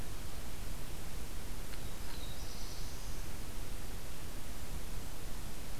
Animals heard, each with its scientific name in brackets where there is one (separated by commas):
Black-throated Blue Warbler (Setophaga caerulescens)